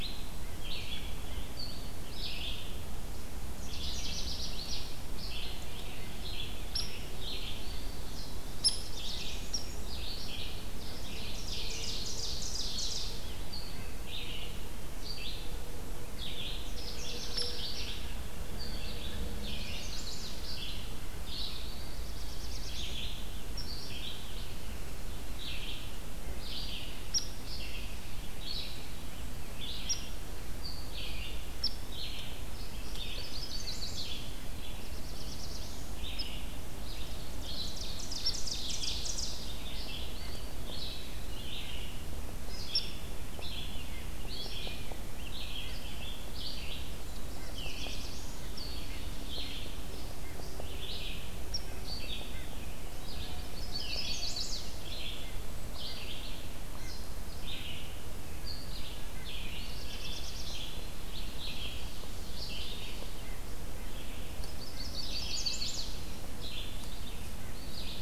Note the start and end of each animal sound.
[0.00, 42.09] Red-eyed Vireo (Vireo olivaceus)
[3.82, 4.96] Canada Warbler (Cardellina canadensis)
[6.55, 9.62] Hairy Woodpecker (Dryobates villosus)
[7.34, 8.22] Eastern Wood-Pewee (Contopus virens)
[8.68, 9.85] Black-throated Blue Warbler (Setophaga caerulescens)
[10.63, 13.06] Ovenbird (Seiurus aurocapilla)
[16.57, 17.60] Canada Warbler (Cardellina canadensis)
[19.28, 20.50] Chestnut-sided Warbler (Setophaga pensylvanica)
[21.75, 22.98] Black-throated Blue Warbler (Setophaga caerulescens)
[26.92, 31.88] Hairy Woodpecker (Dryobates villosus)
[32.92, 34.22] Chestnut-sided Warbler (Setophaga pensylvanica)
[34.36, 36.09] Black-throated Blue Warbler (Setophaga caerulescens)
[36.10, 36.27] Hairy Woodpecker (Dryobates villosus)
[36.99, 39.44] Ovenbird (Seiurus aurocapilla)
[42.48, 68.01] Red-eyed Vireo (Vireo olivaceus)
[42.62, 42.88] Hairy Woodpecker (Dryobates villosus)
[47.02, 48.51] Black-throated Blue Warbler (Setophaga caerulescens)
[51.44, 51.63] Hairy Woodpecker (Dryobates villosus)
[53.38, 54.90] Chestnut-sided Warbler (Setophaga pensylvanica)
[54.68, 55.70] Golden-crowned Kinglet (Regulus satrapa)
[59.39, 60.76] Black-throated Blue Warbler (Setophaga caerulescens)
[64.44, 65.94] Chestnut-sided Warbler (Setophaga pensylvanica)
[67.22, 68.01] Red-breasted Nuthatch (Sitta canadensis)

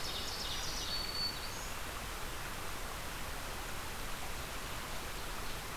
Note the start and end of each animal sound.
[0.00, 0.88] Ovenbird (Seiurus aurocapilla)
[0.00, 1.82] Black-throated Green Warbler (Setophaga virens)

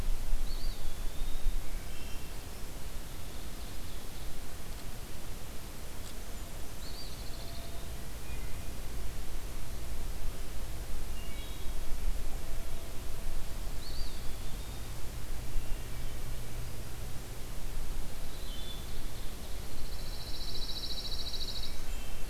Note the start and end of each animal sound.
[0.33, 1.87] Eastern Wood-Pewee (Contopus virens)
[1.53, 2.53] Wood Thrush (Hylocichla mustelina)
[3.10, 4.39] Ovenbird (Seiurus aurocapilla)
[6.73, 8.08] Eastern Wood-Pewee (Contopus virens)
[6.82, 7.80] Pine Warbler (Setophaga pinus)
[8.21, 8.89] Wood Thrush (Hylocichla mustelina)
[10.96, 11.86] Wood Thrush (Hylocichla mustelina)
[13.52, 15.24] Eastern Wood-Pewee (Contopus virens)
[18.10, 19.62] Ovenbird (Seiurus aurocapilla)
[18.27, 19.06] Wood Thrush (Hylocichla mustelina)
[19.15, 21.86] Pine Warbler (Setophaga pinus)
[20.96, 22.04] Blackburnian Warbler (Setophaga fusca)
[21.57, 22.29] Wood Thrush (Hylocichla mustelina)

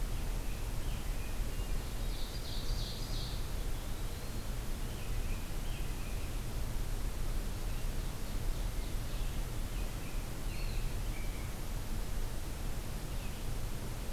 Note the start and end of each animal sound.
[0.00, 1.58] American Robin (Turdus migratorius)
[1.23, 2.31] Hermit Thrush (Catharus guttatus)
[1.99, 3.49] Ovenbird (Seiurus aurocapilla)
[3.25, 4.53] Eastern Wood-Pewee (Contopus virens)
[4.71, 6.29] American Robin (Turdus migratorius)
[9.57, 11.51] American Robin (Turdus migratorius)
[10.29, 10.92] Eastern Wood-Pewee (Contopus virens)

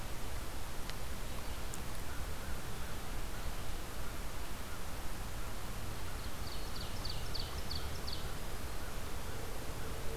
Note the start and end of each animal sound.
[6.18, 8.50] Ovenbird (Seiurus aurocapilla)

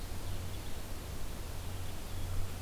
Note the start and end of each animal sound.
[0.14, 2.61] Blue-headed Vireo (Vireo solitarius)
[0.29, 2.61] Red Crossbill (Loxia curvirostra)

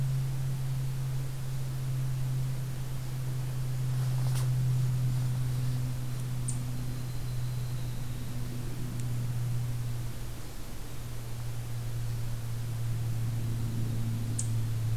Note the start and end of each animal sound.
[6.30, 6.76] Eastern Chipmunk (Tamias striatus)
[6.59, 8.42] Yellow-rumped Warbler (Setophaga coronata)

